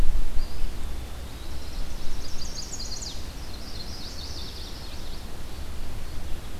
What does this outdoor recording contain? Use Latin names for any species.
Contopus virens, Setophaga pensylvanica